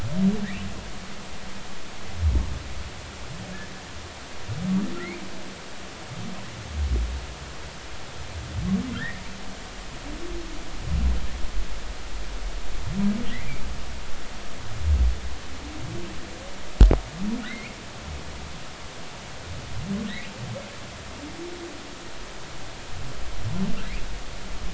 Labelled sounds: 5.0	5.2	humpback whale, 1.8 to 2.5 kHz
8.9	9.2	humpback whale, 1.3 to 2.0 kHz
17.4	17.8	humpback whale, 1.7 to 2.6 kHz

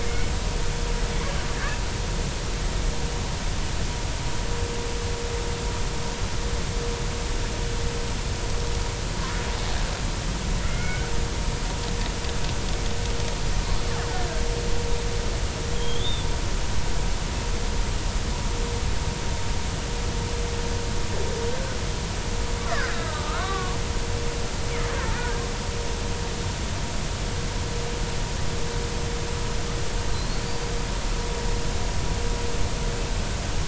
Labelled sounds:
0.0	0.3	killer whale, Bigg's (transient), 2.0 to 2.3 kHz
10.6	11.1	killer whale, Bigg's (transient), 1.4 to 2.3 kHz
15.7	16.3	killer whale, Bigg's (transient), 3.1 to 3.7 kHz
22.7	23.8	killer whale, Bigg's (transient), 1.0 to 2.0 kHz
25.2	25.4	killer whale, Bigg's (transient), 1.4 to 1.7 kHz
30.1	30.4	killer whale, Bigg's (transient), 4.0 to 4.5 kHz

